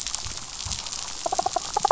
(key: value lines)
label: biophony, damselfish
recorder: SoundTrap 500